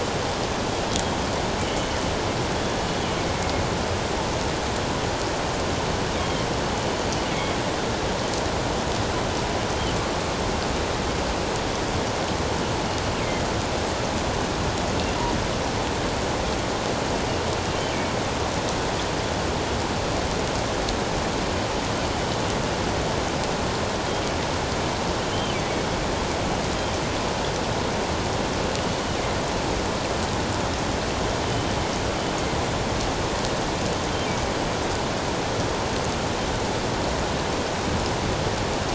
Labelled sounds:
7.3	7.6	killer whale, northern resident, G clan, GG subclan, 2.1 to 3.4 kHz
13.2	13.5	killer whale, northern resident, G clan, GG subclan, 2.0 to 2.3 kHz
25.3	25.6	killer whale, northern resident, G clan, GG subclan, 2.9 to 3.2 kHz
31.4	31.7	killer whale, northern resident, G clan, GG subclan, 2.9 to 3.2 kHz

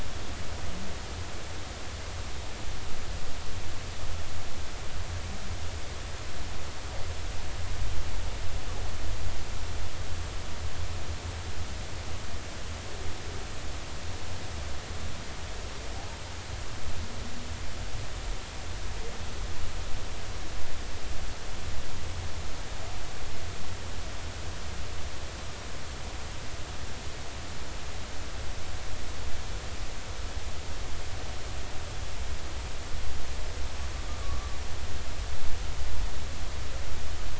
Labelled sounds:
34.2	34.6	humpback whale, 1.1 to 1.2 kHz

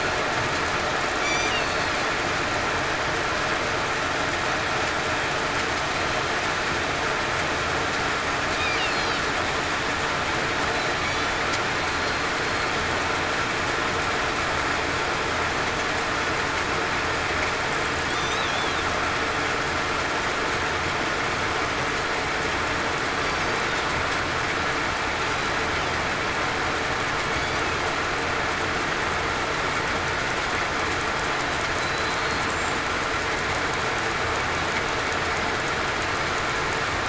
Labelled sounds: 1.6	1.9	killer whale, southern resident, 4.2 to 4.5 kHz
11.0	11.4	killer whale, southern resident, 3.4 to 3.5 kHz
11.8	12.3	killer whale, southern resident, 4.1 to 4.3 kHz
31.8	32.2	killer whale, southern resident, 4.0 to 4.1 kHz

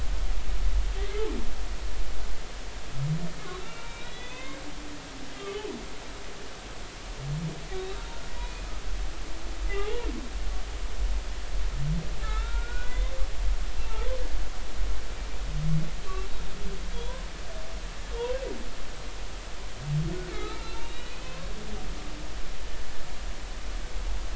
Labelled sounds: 3.6	4.6	humpback whale, 0.96 to 4.0 kHz
5.3	5.7	humpback whale, 2.9 to 3.3 kHz
8.4	8.7	humpback whale, 2.4 to 2.5 kHz
9.7	10.1	humpback whale, 0.80 to 3.4 kHz
12.2	13.1	humpback whale, 1.2 to 3.8 kHz
20.3	21.5	humpback whale, 0.99 to 4.2 kHz

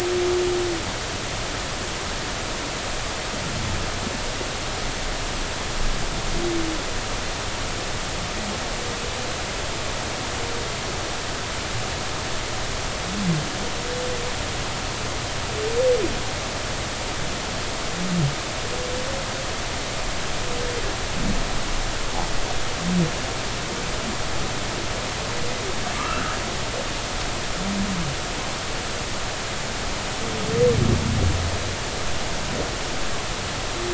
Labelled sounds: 26.0	26.4	humpback whale, 0.96 to 1.5 kHz

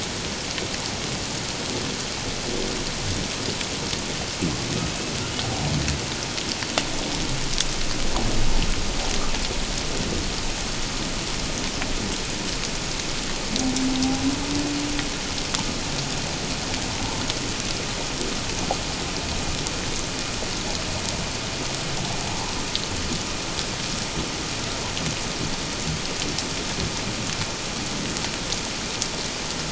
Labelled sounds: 22.3	22.5	humpback whale, 0.78 to 1.1 kHz

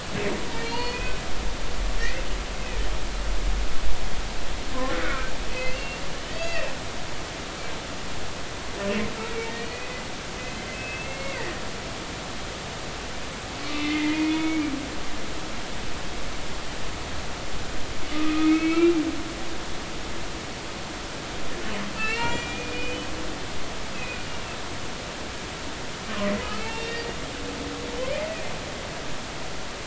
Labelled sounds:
0.6	1.2	humpback whale, 0.86 to 4.9 kHz
2.0	2.3	humpback whale, 1.8 to 2.2 kHz
4.9	6.7	humpback whale, 1.2 to 6.8 kHz
9.6	11.5	humpback whale, 1.8 to 4.5 kHz
13.8	14.7	humpback whale, 1.9 to 3.6 kHz
18.1	19.0	humpback whale, 1.1 to 2.8 kHz
22.0	23.1	humpback whale, 1.2 to 4.3 kHz
23.9	24.6	humpback whale, 2.4 to 2.8 kHz
26.4	27.1	humpback whale, 1.2 to 4.7 kHz

